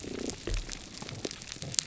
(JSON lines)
{"label": "biophony", "recorder": "SoundTrap 300"}